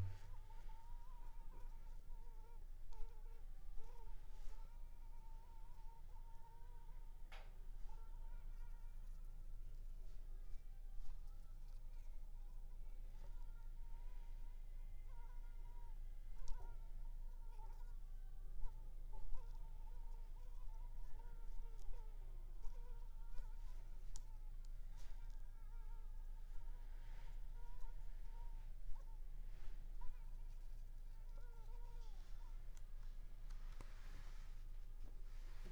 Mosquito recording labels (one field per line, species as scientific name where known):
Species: Culex pipiens complex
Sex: female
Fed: unfed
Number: one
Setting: cup